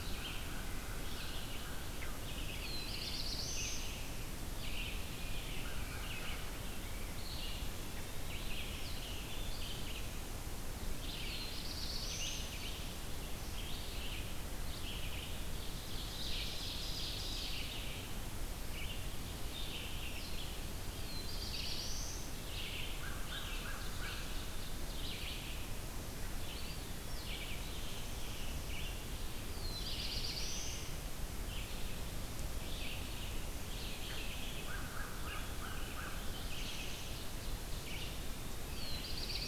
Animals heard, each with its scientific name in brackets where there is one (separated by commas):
Red-eyed Vireo (Vireo olivaceus), Eastern Wood-Pewee (Contopus virens), Ovenbird (Seiurus aurocapilla), American Crow (Corvus brachyrhynchos), Black-capped Chickadee (Poecile atricapillus), Black-throated Blue Warbler (Setophaga caerulescens)